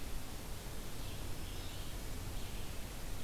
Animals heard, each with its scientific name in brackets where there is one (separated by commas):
Red-eyed Vireo (Vireo olivaceus)